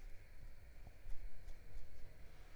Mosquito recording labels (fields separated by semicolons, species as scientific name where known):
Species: Mansonia uniformis; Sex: female; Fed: unfed; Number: one; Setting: cup